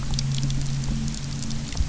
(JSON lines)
{"label": "anthrophony, boat engine", "recorder": "SoundTrap 300"}